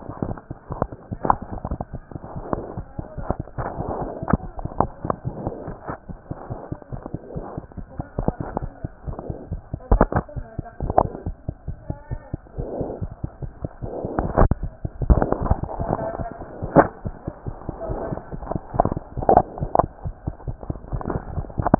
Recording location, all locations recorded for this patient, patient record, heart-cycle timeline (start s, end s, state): mitral valve (MV)
aortic valve (AV)+mitral valve (MV)
#Age: Infant
#Sex: Female
#Height: 68.0 cm
#Weight: 9.07 kg
#Pregnancy status: False
#Murmur: Absent
#Murmur locations: nan
#Most audible location: nan
#Systolic murmur timing: nan
#Systolic murmur shape: nan
#Systolic murmur grading: nan
#Systolic murmur pitch: nan
#Systolic murmur quality: nan
#Diastolic murmur timing: nan
#Diastolic murmur shape: nan
#Diastolic murmur grading: nan
#Diastolic murmur pitch: nan
#Diastolic murmur quality: nan
#Outcome: Normal
#Campaign: 2015 screening campaign
0.00	11.08	unannotated
11.08	11.09	S2
11.09	11.25	diastole
11.25	11.34	S1
11.34	11.48	systole
11.48	11.52	S2
11.52	11.66	diastole
11.66	11.76	S1
11.76	11.88	systole
11.88	11.95	S2
11.95	12.10	diastole
12.10	12.19	S1
12.19	12.32	systole
12.32	12.37	S2
12.37	12.57	diastole
12.57	12.67	S1
12.67	12.78	systole
12.78	12.86	S2
12.86	13.00	diastole
13.00	13.09	S1
13.09	13.22	systole
13.22	13.29	S2
13.29	13.41	diastole
13.41	21.79	unannotated